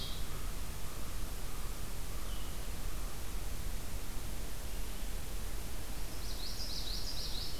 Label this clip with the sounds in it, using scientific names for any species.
Corvus brachyrhynchos, Vireo solitarius, Geothlypis trichas